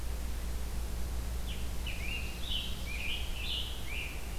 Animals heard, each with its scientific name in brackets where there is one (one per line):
Scarlet Tanager (Piranga olivacea)